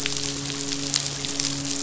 {"label": "biophony, midshipman", "recorder": "SoundTrap 500"}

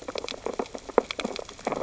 {"label": "biophony, sea urchins (Echinidae)", "recorder": "SoundTrap 600 or HydroMoth"}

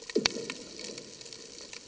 {"label": "anthrophony, bomb", "recorder": "HydroMoth"}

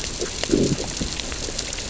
{"label": "biophony, growl", "recorder": "SoundTrap 600 or HydroMoth"}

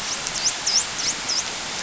{"label": "biophony, dolphin", "recorder": "SoundTrap 500"}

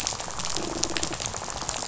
{"label": "biophony, rattle", "recorder": "SoundTrap 500"}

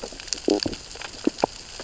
{"label": "biophony, stridulation", "recorder": "SoundTrap 600 or HydroMoth"}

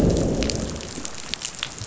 {"label": "biophony, growl", "recorder": "SoundTrap 500"}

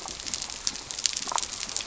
{"label": "biophony", "recorder": "SoundTrap 300"}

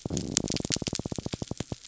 {"label": "biophony", "recorder": "SoundTrap 300"}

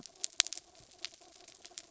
{"label": "anthrophony, mechanical", "recorder": "SoundTrap 300"}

